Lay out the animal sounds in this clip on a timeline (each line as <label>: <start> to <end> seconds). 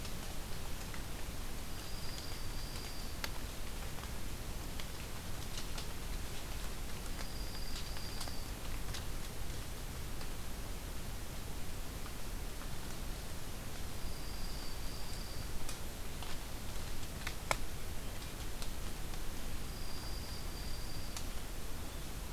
Dark-eyed Junco (Junco hyemalis): 1.6 to 3.2 seconds
Dark-eyed Junco (Junco hyemalis): 6.8 to 8.5 seconds
Dark-eyed Junco (Junco hyemalis): 13.8 to 15.6 seconds
Dark-eyed Junco (Junco hyemalis): 19.5 to 21.4 seconds